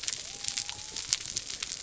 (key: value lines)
label: biophony
recorder: SoundTrap 300